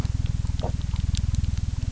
{"label": "anthrophony, boat engine", "recorder": "SoundTrap 300"}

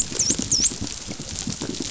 {"label": "biophony, dolphin", "recorder": "SoundTrap 500"}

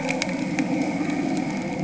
{"label": "anthrophony, boat engine", "recorder": "HydroMoth"}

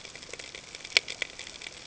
{"label": "ambient", "recorder": "HydroMoth"}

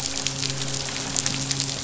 {"label": "biophony, midshipman", "recorder": "SoundTrap 500"}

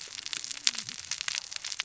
{"label": "biophony, cascading saw", "recorder": "SoundTrap 600 or HydroMoth"}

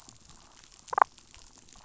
{"label": "biophony, damselfish", "recorder": "SoundTrap 500"}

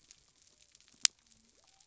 {"label": "biophony", "recorder": "SoundTrap 300"}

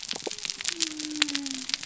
{"label": "biophony", "recorder": "SoundTrap 300"}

